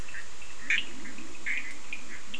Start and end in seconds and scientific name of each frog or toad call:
0.0	2.3	Boana bischoffi
0.0	2.3	Sphaenorhynchus surdus
0.6	2.3	Leptodactylus latrans